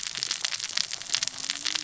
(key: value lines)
label: biophony, cascading saw
recorder: SoundTrap 600 or HydroMoth